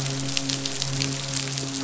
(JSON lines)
{"label": "biophony, midshipman", "recorder": "SoundTrap 500"}